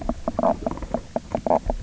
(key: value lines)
label: biophony, knock croak
recorder: SoundTrap 300